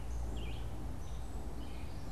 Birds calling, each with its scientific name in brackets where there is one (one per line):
Gray Catbird (Dumetella carolinensis)
Common Yellowthroat (Geothlypis trichas)
Red-eyed Vireo (Vireo olivaceus)